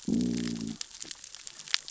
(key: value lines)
label: biophony, growl
recorder: SoundTrap 600 or HydroMoth